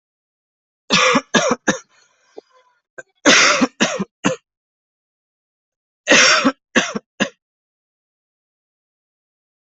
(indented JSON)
{
  "expert_labels": [
    {
      "quality": "ok",
      "cough_type": "dry",
      "dyspnea": false,
      "wheezing": false,
      "stridor": false,
      "choking": false,
      "congestion": false,
      "nothing": true,
      "diagnosis": "COVID-19",
      "severity": "mild"
    }
  ],
  "age": 23,
  "gender": "male",
  "respiratory_condition": false,
  "fever_muscle_pain": false,
  "status": "symptomatic"
}